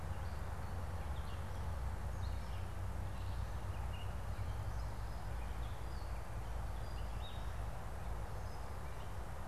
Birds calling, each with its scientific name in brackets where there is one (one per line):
Gray Catbird (Dumetella carolinensis)